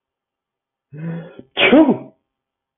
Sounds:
Sneeze